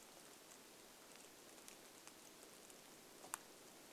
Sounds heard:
rain

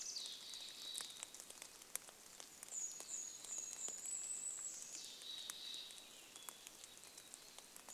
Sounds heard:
Red-breasted Nuthatch song
warbler song
rain
Mountain Chickadee call
Golden-crowned Kinglet song

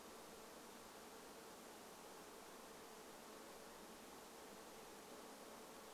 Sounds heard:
insect buzz

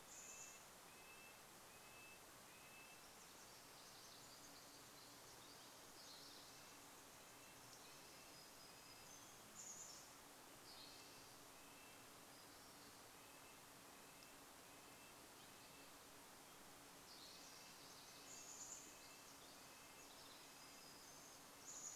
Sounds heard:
warbler song
Chestnut-backed Chickadee call
Red-breasted Nuthatch song
Pacific Wren song
Spotted Towhee song

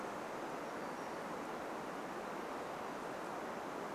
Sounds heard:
Brown Creeper call

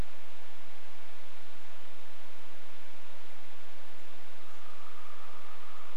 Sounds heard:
woodpecker drumming

